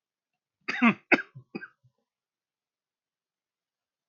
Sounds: Cough